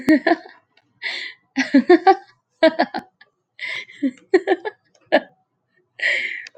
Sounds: Laughter